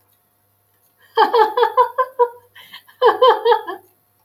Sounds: Laughter